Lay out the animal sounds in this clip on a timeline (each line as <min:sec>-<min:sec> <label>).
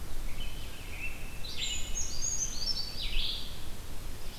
0:00.0-0:03.6 Red-eyed Vireo (Vireo olivaceus)
0:00.2-0:01.9 American Robin (Turdus migratorius)
0:01.2-0:03.6 Brown Creeper (Certhia americana)
0:03.5-0:04.4 Black-throated Blue Warbler (Setophaga caerulescens)